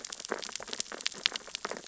{"label": "biophony, sea urchins (Echinidae)", "recorder": "SoundTrap 600 or HydroMoth"}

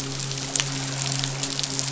{"label": "biophony, midshipman", "recorder": "SoundTrap 500"}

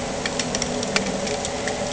{"label": "anthrophony, boat engine", "recorder": "HydroMoth"}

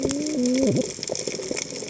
{"label": "biophony, cascading saw", "recorder": "HydroMoth"}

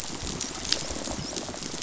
{"label": "biophony, rattle response", "recorder": "SoundTrap 500"}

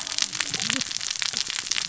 {"label": "biophony, cascading saw", "recorder": "SoundTrap 600 or HydroMoth"}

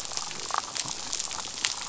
{"label": "biophony, damselfish", "recorder": "SoundTrap 500"}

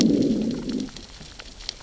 {"label": "biophony, growl", "recorder": "SoundTrap 600 or HydroMoth"}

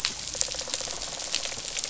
{"label": "biophony, rattle response", "recorder": "SoundTrap 500"}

